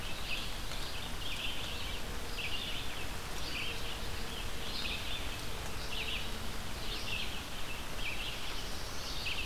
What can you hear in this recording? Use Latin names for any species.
Vireo olivaceus, Setophaga caerulescens